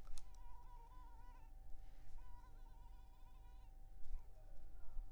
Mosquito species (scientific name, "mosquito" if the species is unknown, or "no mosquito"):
Culex pipiens complex